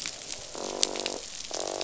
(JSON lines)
{"label": "biophony, croak", "recorder": "SoundTrap 500"}